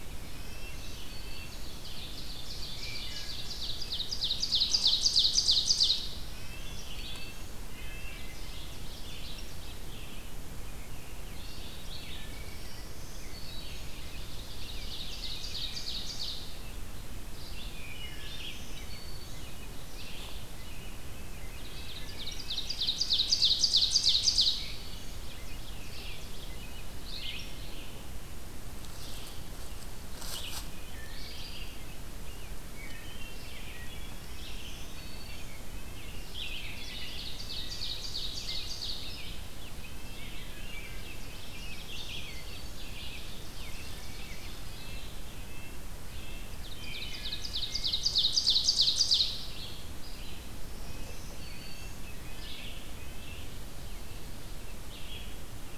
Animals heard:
Red-eyed Vireo (Vireo olivaceus), Wood Thrush (Hylocichla mustelina), Black-throated Green Warbler (Setophaga virens), Ovenbird (Seiurus aurocapilla), Red-breasted Nuthatch (Sitta canadensis), American Robin (Turdus migratorius)

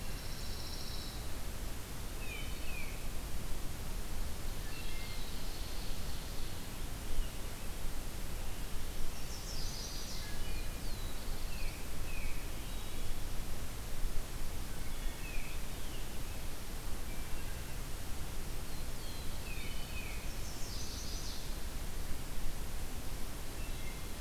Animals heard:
Pine Warbler (Setophaga pinus), Black-throated Blue Warbler (Setophaga caerulescens), Ovenbird (Seiurus aurocapilla), Tufted Titmouse (Baeolophus bicolor), Chestnut-sided Warbler (Setophaga pensylvanica), Wood Thrush (Hylocichla mustelina)

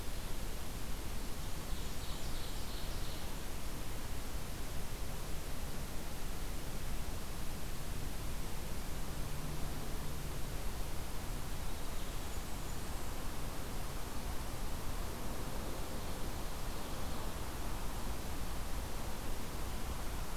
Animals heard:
Ovenbird (Seiurus aurocapilla), Blackburnian Warbler (Setophaga fusca)

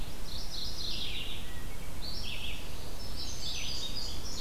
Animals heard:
Red-eyed Vireo (Vireo olivaceus), Mourning Warbler (Geothlypis philadelphia), Indigo Bunting (Passerina cyanea), Wood Thrush (Hylocichla mustelina)

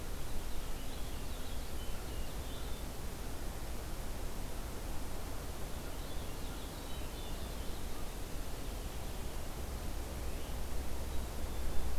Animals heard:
Purple Finch (Haemorhous purpureus), Black-capped Chickadee (Poecile atricapillus)

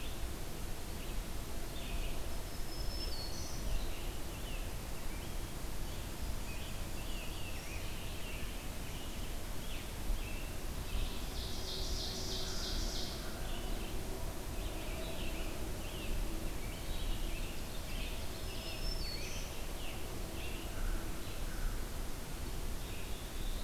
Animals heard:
Red-eyed Vireo (Vireo olivaceus), Black-throated Blue Warbler (Setophaga caerulescens), American Crow (Corvus brachyrhynchos), Rose-breasted Grosbeak (Pheucticus ludovicianus), Ovenbird (Seiurus aurocapilla), Black-throated Green Warbler (Setophaga virens), Scarlet Tanager (Piranga olivacea)

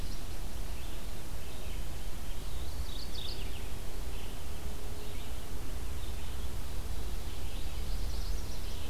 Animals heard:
Magnolia Warbler (Setophaga magnolia), Red-eyed Vireo (Vireo olivaceus), Mourning Warbler (Geothlypis philadelphia)

